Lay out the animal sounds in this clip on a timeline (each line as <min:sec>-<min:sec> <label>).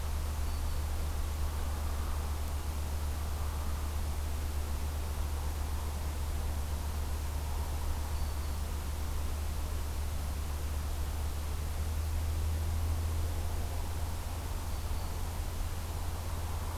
0:00.3-0:01.0 Black-throated Green Warbler (Setophaga virens)
0:08.0-0:08.7 Black-throated Green Warbler (Setophaga virens)
0:14.5-0:15.4 Black-throated Green Warbler (Setophaga virens)